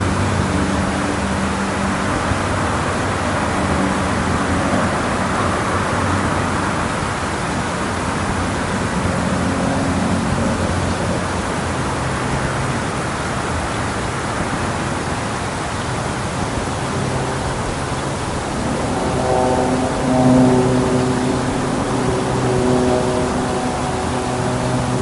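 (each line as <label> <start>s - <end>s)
Continuous loud outdoor ambient noise. 0.0s - 25.0s
A loud, low-pitched, monotonous horn-like noise outdoors. 19.1s - 25.0s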